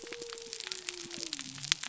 {"label": "biophony", "recorder": "SoundTrap 300"}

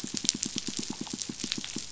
{"label": "biophony, pulse", "recorder": "SoundTrap 500"}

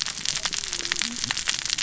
{"label": "biophony, cascading saw", "recorder": "SoundTrap 600 or HydroMoth"}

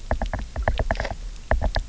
{"label": "biophony, knock", "recorder": "SoundTrap 300"}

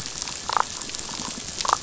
{"label": "biophony, damselfish", "recorder": "SoundTrap 500"}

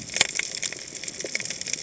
{"label": "biophony, cascading saw", "recorder": "HydroMoth"}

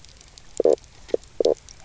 {"label": "biophony, knock croak", "recorder": "SoundTrap 300"}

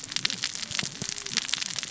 {"label": "biophony, cascading saw", "recorder": "SoundTrap 600 or HydroMoth"}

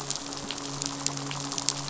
{"label": "biophony, midshipman", "recorder": "SoundTrap 500"}
{"label": "biophony, rattle", "recorder": "SoundTrap 500"}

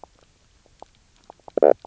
{"label": "biophony, knock croak", "recorder": "SoundTrap 300"}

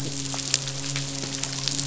{"label": "biophony, midshipman", "recorder": "SoundTrap 500"}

